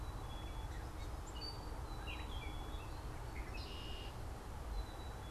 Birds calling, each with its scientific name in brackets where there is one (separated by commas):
Black-capped Chickadee (Poecile atricapillus), Red-winged Blackbird (Agelaius phoeniceus)